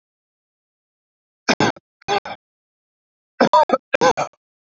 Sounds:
Cough